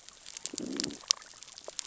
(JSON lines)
{"label": "biophony, growl", "recorder": "SoundTrap 600 or HydroMoth"}